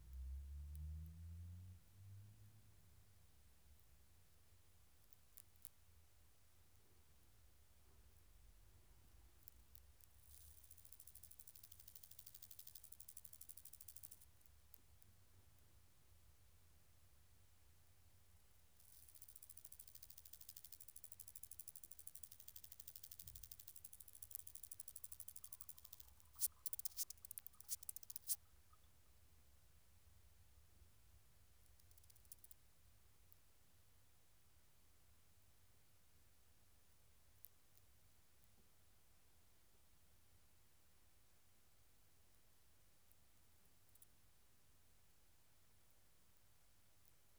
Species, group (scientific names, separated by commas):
Omocestus rufipes, Orthoptera